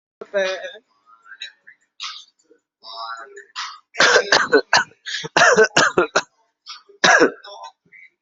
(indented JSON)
{
  "expert_labels": [
    {
      "quality": "good",
      "cough_type": "dry",
      "dyspnea": false,
      "wheezing": false,
      "stridor": false,
      "choking": false,
      "congestion": true,
      "nothing": false,
      "diagnosis": "upper respiratory tract infection",
      "severity": "mild"
    }
  ],
  "age": 27,
  "gender": "male",
  "respiratory_condition": false,
  "fever_muscle_pain": false,
  "status": "symptomatic"
}